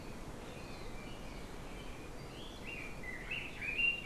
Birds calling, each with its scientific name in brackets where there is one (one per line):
Red-billed Leiothrix (Leiothrix lutea)